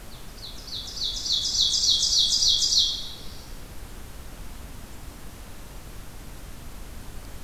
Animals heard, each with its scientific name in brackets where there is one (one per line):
Ovenbird (Seiurus aurocapilla)